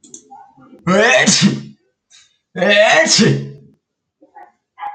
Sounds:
Sneeze